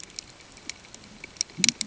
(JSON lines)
{"label": "ambient", "recorder": "HydroMoth"}